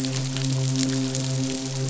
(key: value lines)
label: biophony, midshipman
recorder: SoundTrap 500